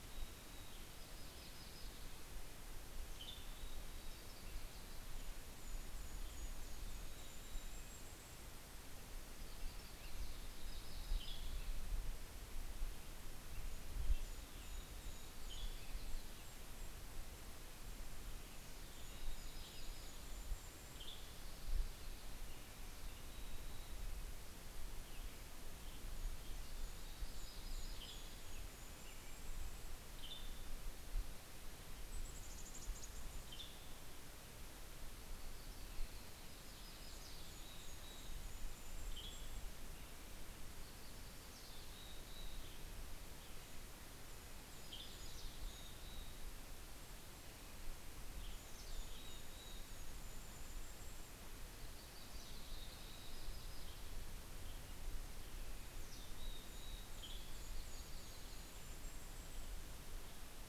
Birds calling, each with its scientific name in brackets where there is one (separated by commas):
Western Tanager (Piranga ludoviciana), Red-breasted Nuthatch (Sitta canadensis), American Robin (Turdus migratorius), Mountain Chickadee (Poecile gambeli), Yellow-rumped Warbler (Setophaga coronata), Golden-crowned Kinglet (Regulus satrapa)